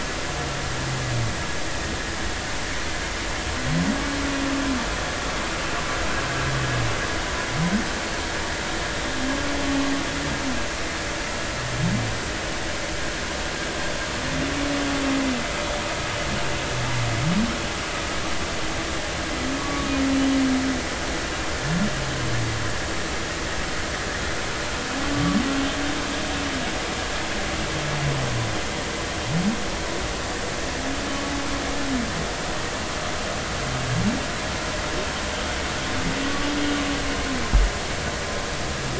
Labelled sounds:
19.6	19.9	humpback whale, 1.0 to 1.2 kHz
25.1	25.4	humpback whale, 1.1 to 1.2 kHz
36.2	36.5	humpback whale, 1.1 to 1.2 kHz

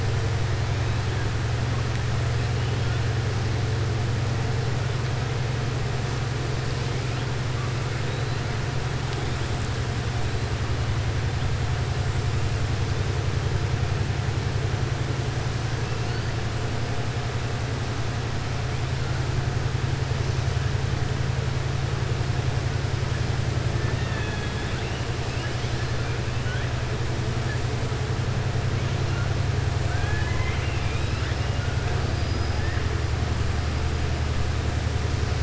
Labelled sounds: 29.8	31.4	killer whale, southern resident, 0.85 to 5.1 kHz
32.0	32.6	killer whale, southern resident, 4.6 to 5.1 kHz

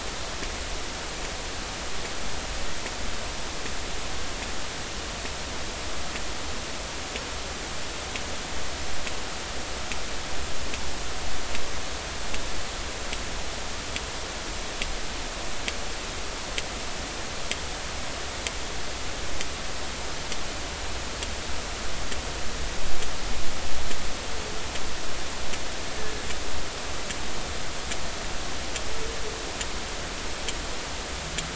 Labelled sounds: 26.0	26.3	humpback whale, 1.6 to 1.8 kHz

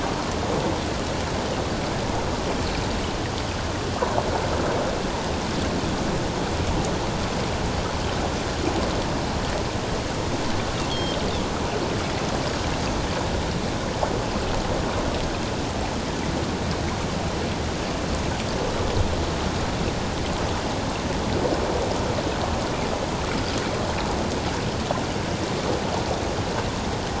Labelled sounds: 10.9	11.2	Pacific white-sided dolphin, 3.1 to 3.5 kHz

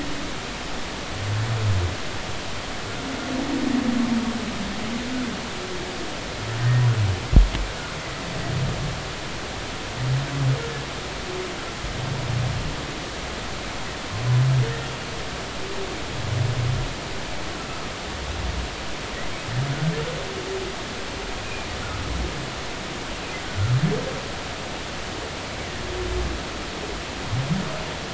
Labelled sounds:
17.6	17.9	humpback whale, 1.2 to 1.4 kHz
21.4	21.7	humpback whale, 2.3 to 2.6 kHz
23.4	23.7	humpback whale, 1.3 to 1.5 kHz

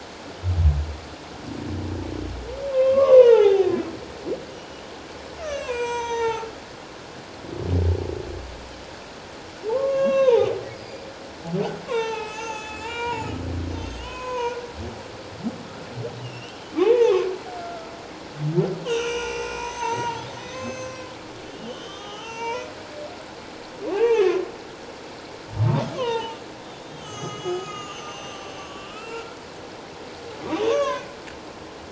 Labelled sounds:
2.7	3.7	humpback whale, 0.78 to 3.0 kHz
5.4	6.5	humpback whale, 0.78 to 7.8 kHz
9.7	11.0	humpback whale, 0.78 to 6.1 kHz
11.9	13.4	humpback whale, 0.81 to 7.2 kHz
13.7	14.6	humpback whale, 0.88 to 7.6 kHz
16.2	17.2	humpback whale, 0.78 to 3.3 kHz
17.6	17.9	humpback whale, 1.2 to 1.4 kHz
18.8	21.1	humpback whale, 0.84 to 6.8 kHz
21.5	22.7	humpback whale, 0.78 to 6.6 kHz
23.9	24.5	humpback whale, 0.78 to 2.9 kHz
26.0	26.4	humpback whale, 0.81 to 6.6 kHz
26.8	29.4	humpback whale, 1.1 to 7.2 kHz
30.6	31.1	humpback whale, 0.97 to 6.5 kHz

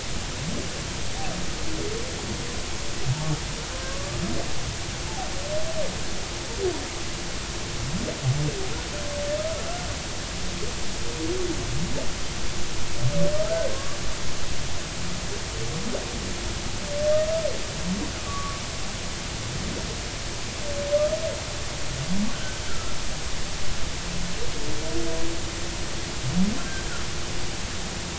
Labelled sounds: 3.7	4.2	humpback whale, 1.0 to 1.2 kHz
9.4	9.7	humpback whale, 1.2 to 1.4 kHz
13.4	14.0	humpback whale, 1.0 to 1.6 kHz
18.3	18.6	humpback whale, 1.1 to 1.2 kHz
22.7	22.9	humpback whale, 1.2 to 1.7 kHz

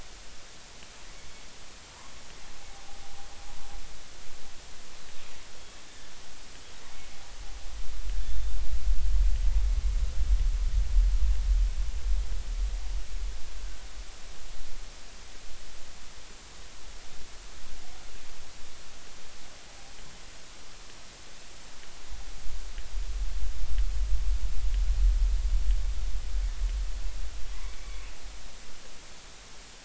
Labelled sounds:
5.8	6.1	killer whale, northern resident, G clan, 3.4 to 3.6 kHz
27.8	28.0	killer whale, northern resident, G clan, call N23i, 2.1 to 2.3 kHz

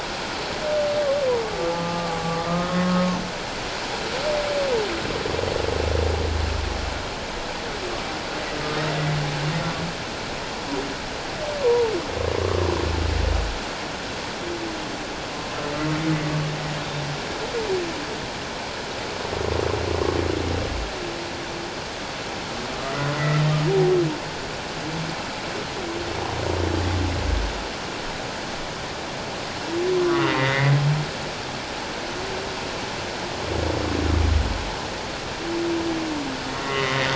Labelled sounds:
1.7	3.2	humpback whale, 1.1 to 1.3 kHz
11.6	11.9	humpback whale, 0.84 to 1.1 kHz
23.1	23.4	humpback whale, 1.8 to 2.0 kHz
30.0	30.7	humpback whale, 1.0 to 2.2 kHz
36.6	37.1	humpback whale, 1.8 to 2.1 kHz

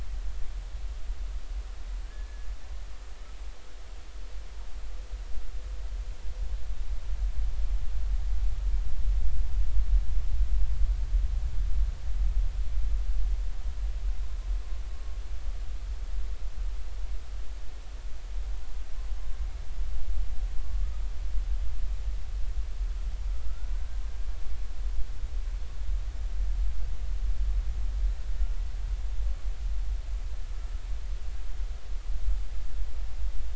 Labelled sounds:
2.0	2.5	humpback whale, 1.5 to 1.8 kHz

